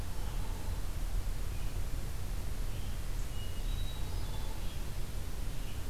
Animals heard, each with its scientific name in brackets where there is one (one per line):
Red-eyed Vireo (Vireo olivaceus)
Hairy Woodpecker (Dryobates villosus)
Hermit Thrush (Catharus guttatus)